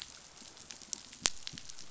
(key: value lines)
label: biophony, pulse
recorder: SoundTrap 500